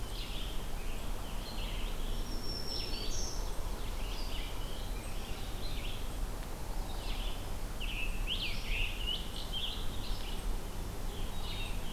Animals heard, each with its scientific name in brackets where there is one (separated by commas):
Black-throated Green Warbler (Setophaga virens), Scarlet Tanager (Piranga olivacea), Black-capped Chickadee (Poecile atricapillus), Red-eyed Vireo (Vireo olivaceus)